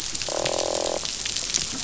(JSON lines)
{"label": "biophony, croak", "recorder": "SoundTrap 500"}